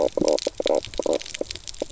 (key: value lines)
label: biophony, knock croak
recorder: SoundTrap 300